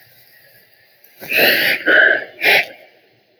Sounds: Sniff